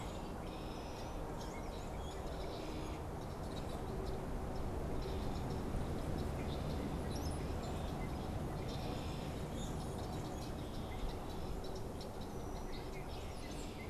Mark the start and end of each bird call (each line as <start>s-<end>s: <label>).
0.0s-13.9s: Red-winged Blackbird (Agelaius phoeniceus)
7.0s-7.6s: unidentified bird
9.2s-10.3s: Common Grackle (Quiscalus quiscula)